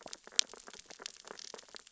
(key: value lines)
label: biophony, sea urchins (Echinidae)
recorder: SoundTrap 600 or HydroMoth